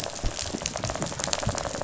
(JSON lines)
{"label": "biophony, rattle response", "recorder": "SoundTrap 500"}